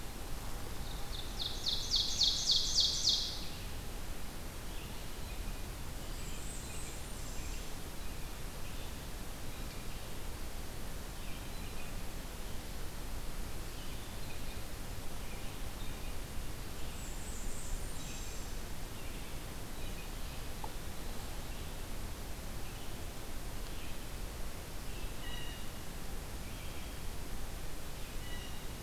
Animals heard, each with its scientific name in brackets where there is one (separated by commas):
Blue Jay (Cyanocitta cristata), Ovenbird (Seiurus aurocapilla), Red-eyed Vireo (Vireo olivaceus), Blackburnian Warbler (Setophaga fusca)